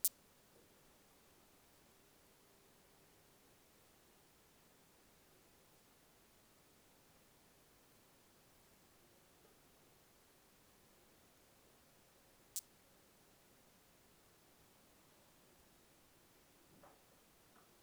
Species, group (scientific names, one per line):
Poecilimon zwicki
Orthoptera